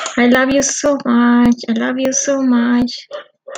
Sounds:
Sigh